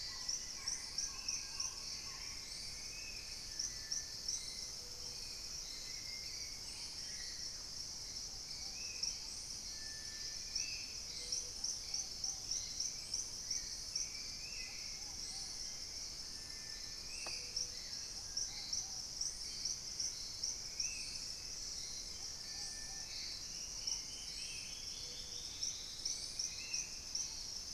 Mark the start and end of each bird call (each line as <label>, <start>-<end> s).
Amazonian Trogon (Trogon ramonianus), 0.0-2.4 s
Hauxwell's Thrush (Turdus hauxwelli), 0.0-27.7 s
Spot-winged Antshrike (Pygiptila stellaris), 0.0-27.7 s
Collared Trogon (Trogon collaris), 0.4-1.8 s
unidentified bird, 5.6-7.4 s
Purple-throated Fruitcrow (Querula purpurata), 6.3-9.5 s
Ruddy Pigeon (Patagioenas subvinacea), 8.4-27.7 s
Collared Trogon (Trogon collaris), 17.6-18.9 s
Dusky-throated Antshrike (Thamnomanes ardesiacus), 21.5-26.3 s